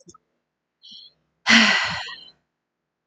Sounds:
Sigh